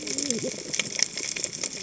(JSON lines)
{"label": "biophony, cascading saw", "recorder": "HydroMoth"}